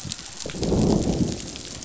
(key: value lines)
label: biophony, growl
recorder: SoundTrap 500